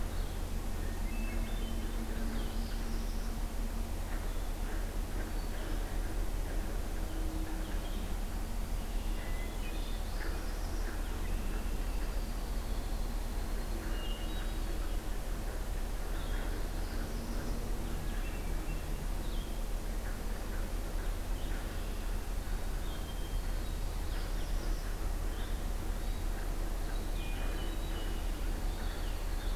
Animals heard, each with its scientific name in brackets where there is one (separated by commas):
Downy Woodpecker (Dryobates pubescens), Blue-headed Vireo (Vireo solitarius), Hermit Thrush (Catharus guttatus), Northern Parula (Setophaga americana)